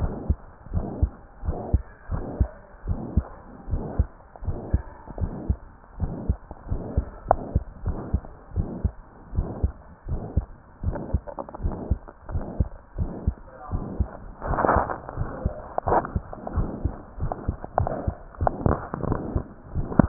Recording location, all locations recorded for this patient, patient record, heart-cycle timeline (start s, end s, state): mitral valve (MV)
aortic valve (AV)+pulmonary valve (PV)+tricuspid valve (TV)+mitral valve (MV)
#Age: Child
#Sex: Female
#Height: 128.0 cm
#Weight: 24.3 kg
#Pregnancy status: False
#Murmur: Present
#Murmur locations: aortic valve (AV)+mitral valve (MV)+pulmonary valve (PV)+tricuspid valve (TV)
#Most audible location: tricuspid valve (TV)
#Systolic murmur timing: Holosystolic
#Systolic murmur shape: Plateau
#Systolic murmur grading: III/VI or higher
#Systolic murmur pitch: High
#Systolic murmur quality: Blowing
#Diastolic murmur timing: nan
#Diastolic murmur shape: nan
#Diastolic murmur grading: nan
#Diastolic murmur pitch: nan
#Diastolic murmur quality: nan
#Outcome: Normal
#Campaign: 2015 screening campaign
0.00	0.14	S1
0.14	0.26	systole
0.26	0.38	S2
0.38	0.72	diastole
0.72	0.84	S1
0.84	0.96	systole
0.96	1.12	S2
1.12	1.46	diastole
1.46	1.58	S1
1.58	1.70	systole
1.70	1.82	S2
1.82	2.10	diastole
2.10	2.24	S1
2.24	2.36	systole
2.36	2.50	S2
2.50	2.86	diastole
2.86	3.00	S1
3.00	3.12	systole
3.12	3.26	S2
3.26	3.68	diastole
3.68	3.84	S1
3.84	3.98	systole
3.98	4.12	S2
4.12	4.46	diastole
4.46	4.58	S1
4.58	4.72	systole
4.72	4.84	S2
4.84	5.18	diastole
5.18	5.32	S1
5.32	5.46	systole
5.46	5.58	S2
5.58	5.98	diastole
5.98	6.14	S1
6.14	6.26	systole
6.26	6.38	S2
6.38	6.70	diastole
6.70	6.82	S1
6.82	6.94	systole
6.94	7.04	S2
7.04	7.32	diastole
7.32	7.40	S1
7.40	7.52	systole
7.52	7.60	S2
7.60	7.84	diastole
7.84	7.98	S1
7.98	8.12	systole
8.12	8.24	S2
8.24	8.56	diastole
8.56	8.68	S1
8.68	8.82	systole
8.82	8.94	S2
8.94	9.34	diastole
9.34	9.48	S1
9.48	9.62	systole
9.62	9.74	S2
9.74	10.10	diastole
10.10	10.22	S1
10.22	10.34	systole
10.34	10.46	S2
10.46	10.84	diastole
10.84	10.96	S1
10.96	11.10	systole
11.10	11.24	S2
11.24	11.62	diastole
11.62	11.76	S1
11.76	11.88	systole
11.88	11.98	S2
11.98	12.32	diastole
12.32	12.44	S1
12.44	12.56	systole
12.56	12.70	S2
12.70	12.98	diastole
12.98	13.12	S1
13.12	13.26	systole
13.26	13.38	S2
13.38	13.72	diastole
13.72	13.86	S1
13.86	13.98	systole
13.98	14.10	S2
14.10	14.46	diastole
14.46	14.60	S1